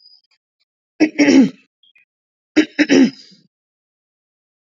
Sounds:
Throat clearing